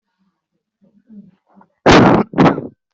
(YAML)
expert_labels:
- quality: poor
  cough_type: unknown
  dyspnea: false
  wheezing: false
  stridor: false
  choking: false
  congestion: false
  nothing: true
  diagnosis: lower respiratory tract infection
  severity: unknown
gender: female
respiratory_condition: false
fever_muscle_pain: true
status: healthy